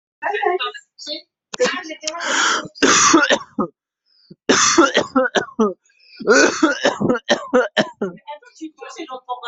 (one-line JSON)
{"expert_labels": [{"quality": "poor", "cough_type": "dry", "dyspnea": false, "wheezing": false, "stridor": false, "choking": false, "congestion": false, "nothing": false, "diagnosis": "COVID-19", "severity": "severe"}], "age": 27, "gender": "male", "respiratory_condition": false, "fever_muscle_pain": false, "status": "healthy"}